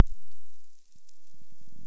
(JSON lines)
{"label": "biophony", "recorder": "SoundTrap 300"}